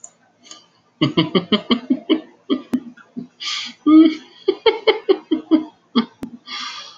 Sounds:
Laughter